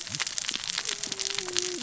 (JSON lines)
{"label": "biophony, cascading saw", "recorder": "SoundTrap 600 or HydroMoth"}